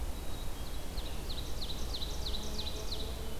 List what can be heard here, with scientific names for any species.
Poecile atricapillus, Seiurus aurocapilla